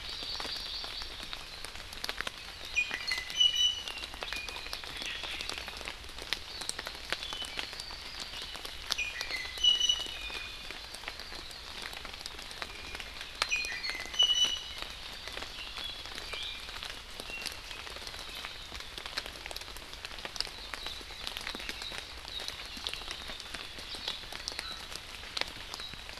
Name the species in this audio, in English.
Hawaii Amakihi, Iiwi, Hawaii Creeper